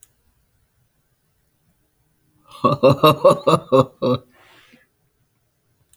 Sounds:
Laughter